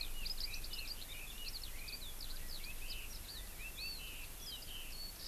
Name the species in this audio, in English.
Eurasian Skylark, Red-billed Leiothrix, Warbling White-eye